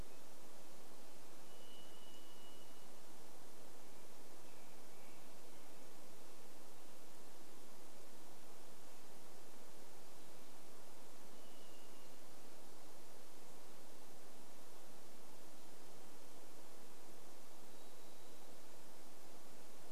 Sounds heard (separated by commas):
Varied Thrush song, American Robin song